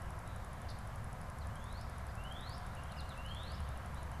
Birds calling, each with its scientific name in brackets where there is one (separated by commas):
Northern Cardinal (Cardinalis cardinalis)